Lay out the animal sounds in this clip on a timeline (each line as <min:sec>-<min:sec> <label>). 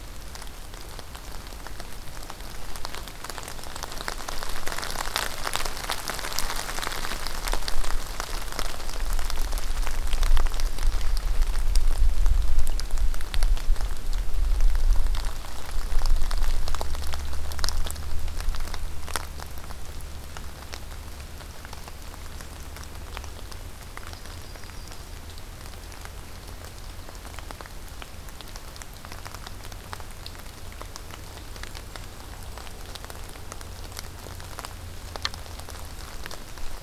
0:10.1-0:11.4 Dark-eyed Junco (Junco hyemalis)
0:11.9-0:12.9 Golden-crowned Kinglet (Regulus satrapa)
0:22.0-0:22.9 Golden-crowned Kinglet (Regulus satrapa)
0:23.8-0:25.2 Yellow-rumped Warbler (Setophaga coronata)
0:31.5-0:32.9 Golden-crowned Kinglet (Regulus satrapa)